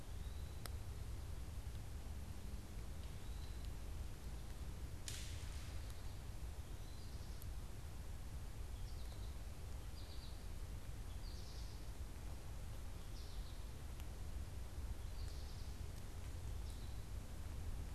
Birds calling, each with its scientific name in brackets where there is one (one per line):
Eastern Wood-Pewee (Contopus virens)
American Goldfinch (Spinus tristis)